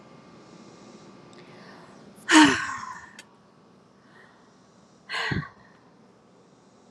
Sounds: Sigh